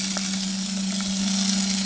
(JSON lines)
{"label": "anthrophony, boat engine", "recorder": "HydroMoth"}